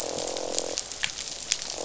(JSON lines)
{"label": "biophony, croak", "recorder": "SoundTrap 500"}